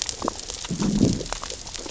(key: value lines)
label: biophony, growl
recorder: SoundTrap 600 or HydroMoth